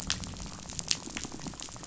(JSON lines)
{"label": "biophony, rattle", "recorder": "SoundTrap 500"}